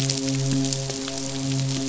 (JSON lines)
{"label": "biophony, midshipman", "recorder": "SoundTrap 500"}